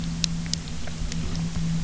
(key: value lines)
label: anthrophony, boat engine
recorder: SoundTrap 300